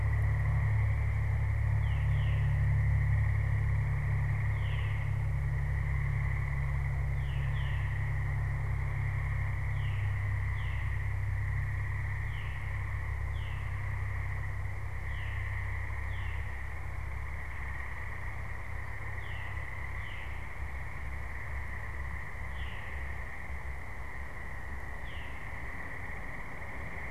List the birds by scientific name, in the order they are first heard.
Catharus fuscescens